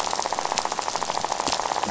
{"label": "biophony, rattle", "recorder": "SoundTrap 500"}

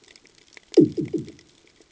{"label": "anthrophony, bomb", "recorder": "HydroMoth"}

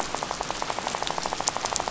{"label": "biophony, rattle", "recorder": "SoundTrap 500"}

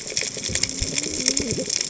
{"label": "biophony, cascading saw", "recorder": "HydroMoth"}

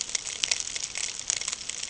{"label": "ambient", "recorder": "HydroMoth"}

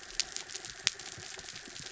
{"label": "anthrophony, mechanical", "recorder": "SoundTrap 300"}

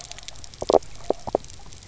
{"label": "biophony, knock croak", "recorder": "SoundTrap 300"}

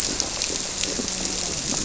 {"label": "biophony", "recorder": "SoundTrap 300"}
{"label": "biophony, grouper", "recorder": "SoundTrap 300"}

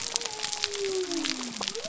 {"label": "biophony", "recorder": "SoundTrap 300"}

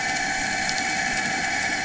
{"label": "anthrophony, boat engine", "recorder": "HydroMoth"}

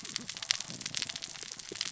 {"label": "biophony, cascading saw", "recorder": "SoundTrap 600 or HydroMoth"}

